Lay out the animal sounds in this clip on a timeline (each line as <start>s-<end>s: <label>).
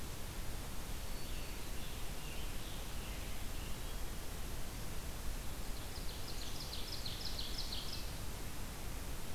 0.9s-3.9s: Scarlet Tanager (Piranga olivacea)
5.6s-8.2s: Ovenbird (Seiurus aurocapilla)